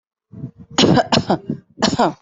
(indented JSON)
{
  "expert_labels": [
    {
      "quality": "good",
      "cough_type": "dry",
      "dyspnea": false,
      "wheezing": false,
      "stridor": false,
      "choking": false,
      "congestion": false,
      "nothing": true,
      "diagnosis": "healthy cough",
      "severity": "pseudocough/healthy cough"
    }
  ]
}